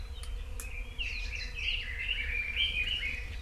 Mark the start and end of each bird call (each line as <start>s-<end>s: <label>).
0.6s-3.3s: Red-billed Leiothrix (Leiothrix lutea)
1.0s-1.3s: Hawaii Amakihi (Chlorodrepanis virens)